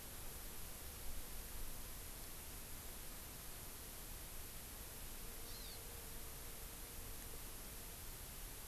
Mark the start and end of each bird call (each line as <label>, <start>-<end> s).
Hawaii Amakihi (Chlorodrepanis virens), 5.3-5.7 s